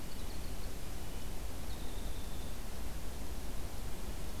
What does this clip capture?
Winter Wren